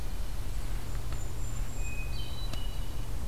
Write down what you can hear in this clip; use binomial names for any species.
Regulus satrapa, Catharus guttatus